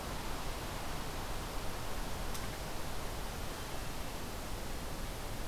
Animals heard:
forest ambience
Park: Acadia National Park